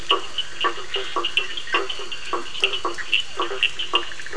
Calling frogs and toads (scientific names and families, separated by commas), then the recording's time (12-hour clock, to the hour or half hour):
Boana faber (Hylidae), Elachistocleis bicolor (Microhylidae), Scinax perereca (Hylidae), Sphaenorhynchus surdus (Hylidae), Leptodactylus latrans (Leptodactylidae)
9pm